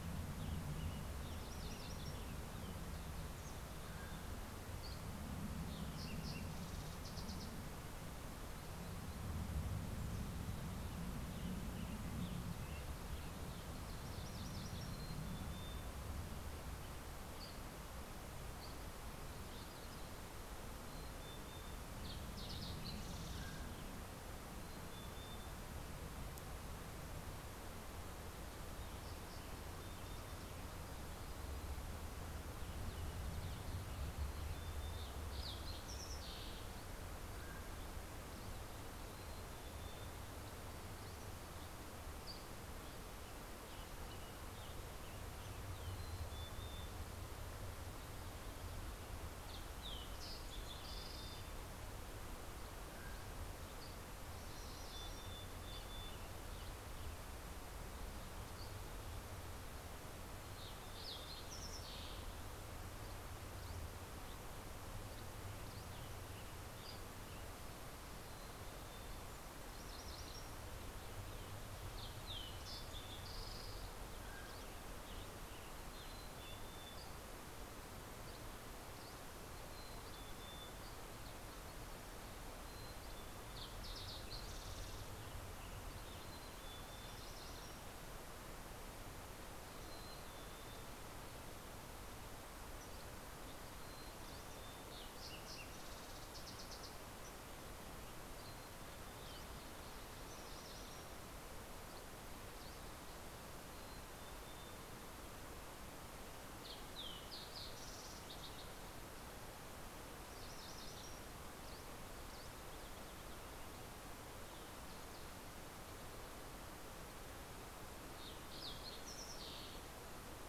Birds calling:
Western Tanager (Piranga ludoviciana)
Mountain Quail (Oreortyx pictus)
MacGillivray's Warbler (Geothlypis tolmiei)
Red-breasted Nuthatch (Sitta canadensis)
Fox Sparrow (Passerella iliaca)
Mountain Chickadee (Poecile gambeli)
Dusky Flycatcher (Empidonax oberholseri)

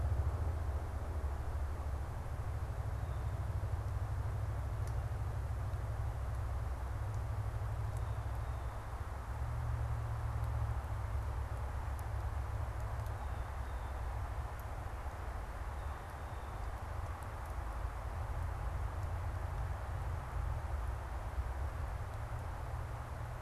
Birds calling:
Blue Jay (Cyanocitta cristata)

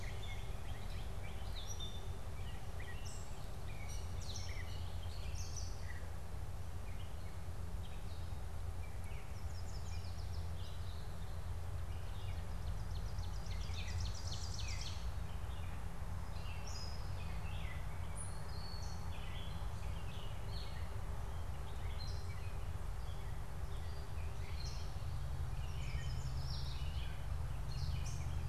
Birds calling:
Yellow Warbler (Setophaga petechia)
Northern Cardinal (Cardinalis cardinalis)
Gray Catbird (Dumetella carolinensis)
Ovenbird (Seiurus aurocapilla)

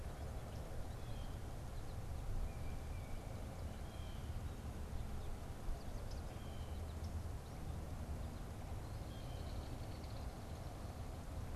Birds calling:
Belted Kingfisher (Megaceryle alcyon)
Blue Jay (Cyanocitta cristata)

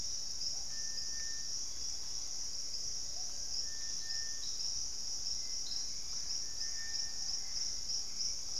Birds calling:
Purple-throated Fruitcrow (Querula purpurata)
Gray Antbird (Cercomacra cinerascens)

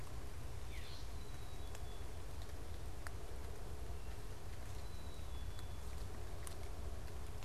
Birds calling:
Gray Catbird (Dumetella carolinensis)
Black-capped Chickadee (Poecile atricapillus)

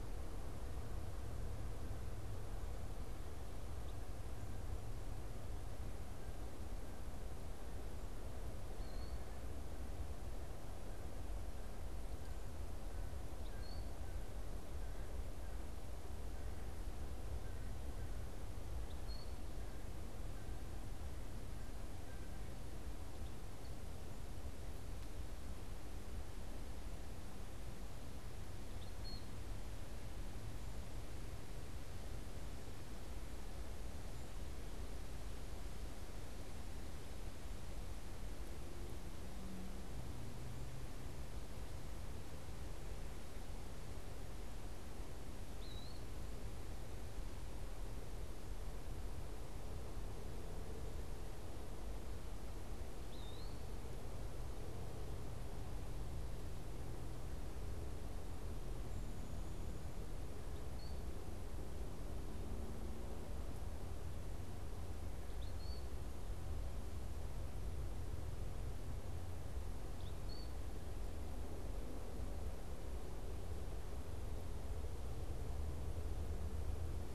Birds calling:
American Crow (Corvus brachyrhynchos)
Eastern Wood-Pewee (Contopus virens)

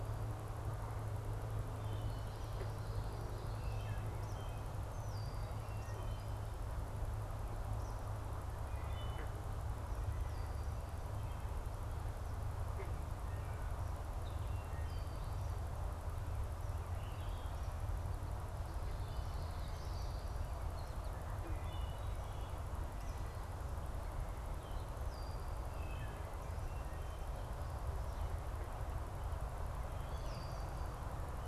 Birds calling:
Red-winged Blackbird (Agelaius phoeniceus)
Wood Thrush (Hylocichla mustelina)
Eastern Kingbird (Tyrannus tyrannus)
Common Yellowthroat (Geothlypis trichas)

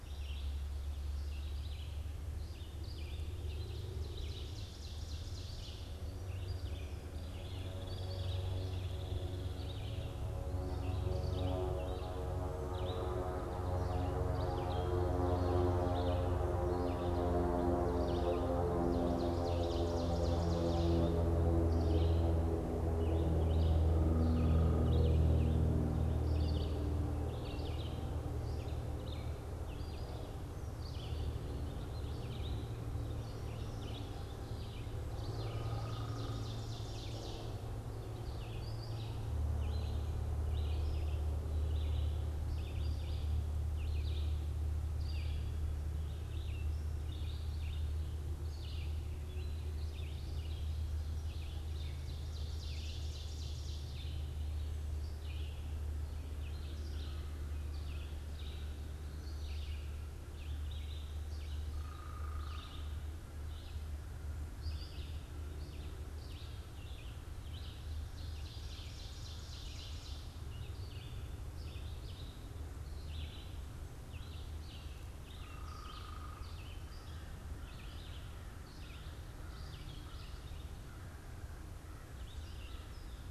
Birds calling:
Ovenbird (Seiurus aurocapilla)
Red-eyed Vireo (Vireo olivaceus)
Hairy Woodpecker (Dryobates villosus)
unidentified bird

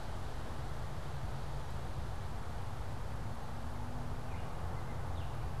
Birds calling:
Baltimore Oriole (Icterus galbula)

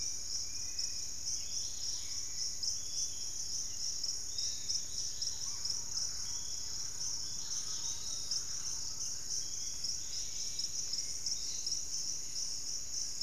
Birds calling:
Piratic Flycatcher (Legatus leucophaius)
Hauxwell's Thrush (Turdus hauxwelli)
Pygmy Antwren (Myrmotherula brachyura)
Dusky-capped Flycatcher (Myiarchus tuberculifer)
Thrush-like Wren (Campylorhynchus turdinus)
Undulated Tinamou (Crypturellus undulatus)
Dusky-capped Greenlet (Pachysylvia hypoxantha)
Fasciated Antshrike (Cymbilaimus lineatus)

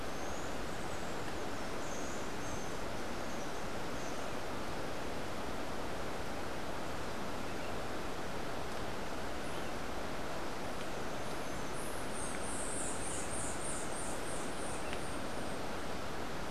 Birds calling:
White-eared Ground-Sparrow (Melozone leucotis)
Buff-throated Saltator (Saltator maximus)

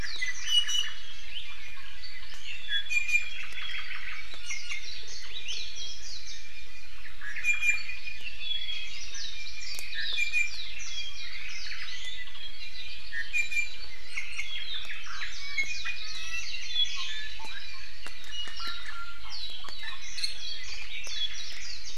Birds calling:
Iiwi (Drepanis coccinea)

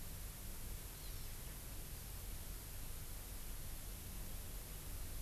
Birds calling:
Hawaii Amakihi (Chlorodrepanis virens)

